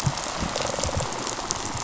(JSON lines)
{"label": "biophony, rattle response", "recorder": "SoundTrap 500"}